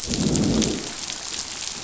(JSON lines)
{"label": "biophony, growl", "recorder": "SoundTrap 500"}